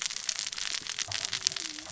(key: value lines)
label: biophony, cascading saw
recorder: SoundTrap 600 or HydroMoth